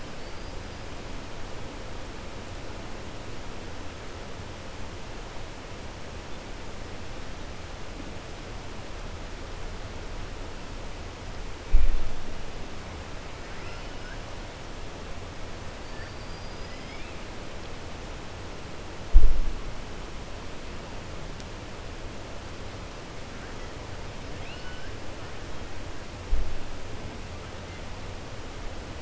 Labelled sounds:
0.1	0.5	killer whale, 4.4 to 4.9 kHz
13.4	14.2	killer whale, 1.3 to 3.0 kHz
24.3	24.9	killer whale, 1.5 to 5.2 kHz

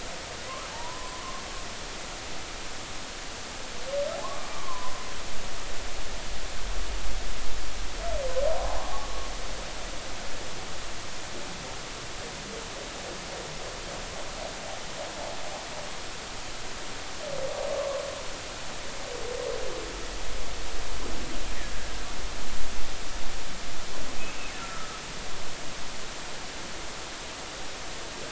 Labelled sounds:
0.7	1.2	humpback whale, 0.83 to 1.1 kHz
4.5	5.0	humpback whale, 0.96 to 1.2 kHz
8.5	9.1	humpback whale, 0.80 to 1.2 kHz
24.6	25.0	humpback whale, 1.2 to 1.5 kHz

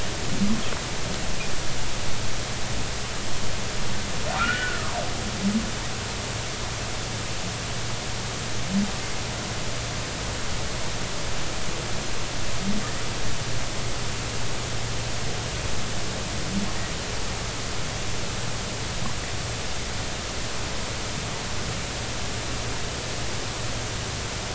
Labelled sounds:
4.4	5.0	humpback whale, 0.90 to 1.6 kHz

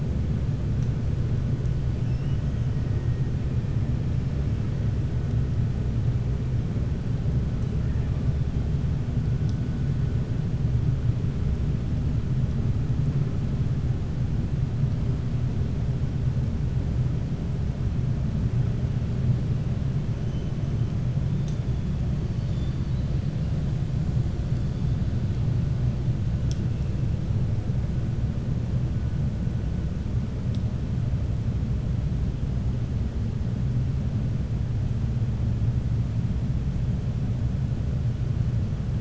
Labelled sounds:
22.3	23.0	killer whale, 3.0 to 5.0 kHz

